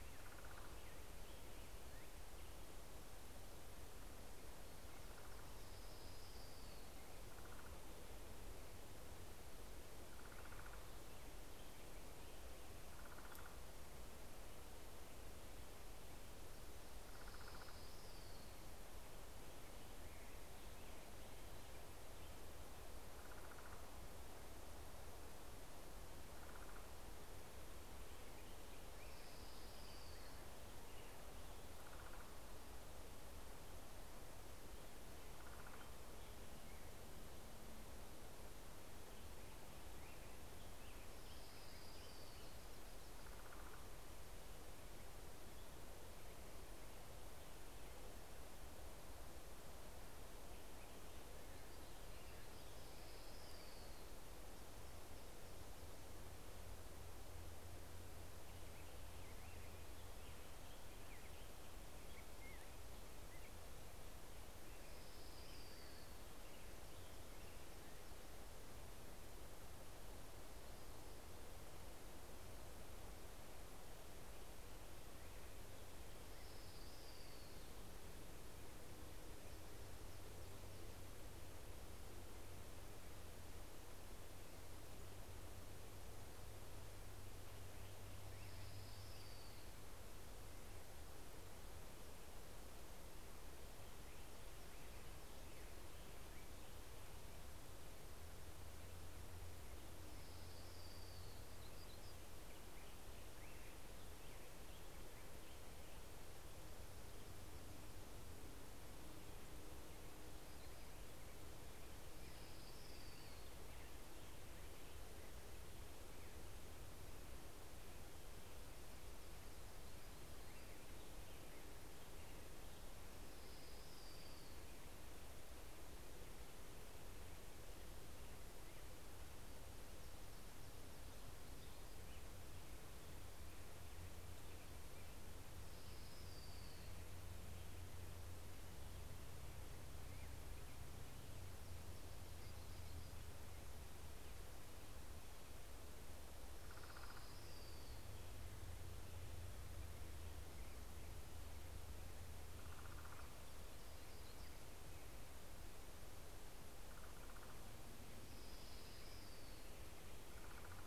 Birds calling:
Orange-crowned Warbler (Leiothlypis celata), Common Raven (Corvus corax), American Robin (Turdus migratorius), Hermit Warbler (Setophaga occidentalis)

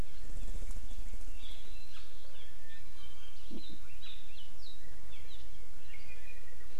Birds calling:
Iiwi (Drepanis coccinea)

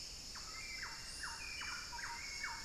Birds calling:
Hauxwell's Thrush (Turdus hauxwelli), unidentified bird, Thrush-like Wren (Campylorhynchus turdinus)

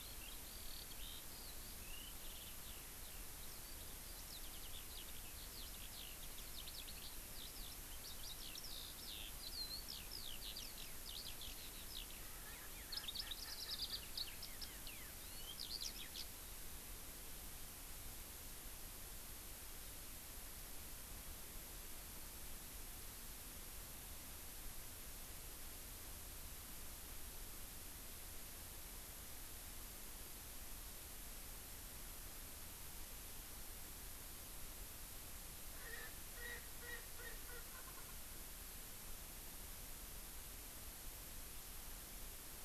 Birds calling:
Erckel's Francolin (Pternistis erckelii), Eurasian Skylark (Alauda arvensis)

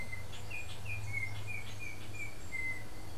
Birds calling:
Yellow-backed Oriole (Icterus chrysater)

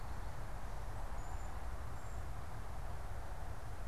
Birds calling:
Cedar Waxwing (Bombycilla cedrorum)

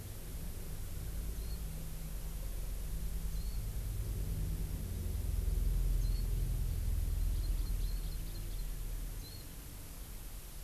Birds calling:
Hawaii Amakihi (Chlorodrepanis virens), Warbling White-eye (Zosterops japonicus)

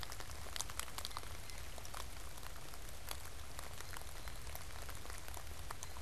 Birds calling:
Blue Jay (Cyanocitta cristata)

